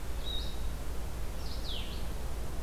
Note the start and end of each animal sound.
[0.00, 2.62] Blue-headed Vireo (Vireo solitarius)

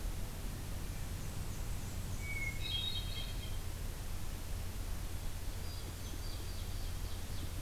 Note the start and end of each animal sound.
[0.90, 2.70] Black-and-white Warbler (Mniotilta varia)
[2.14, 3.68] Hermit Thrush (Catharus guttatus)
[5.36, 7.61] Ovenbird (Seiurus aurocapilla)
[5.52, 6.94] Hermit Thrush (Catharus guttatus)

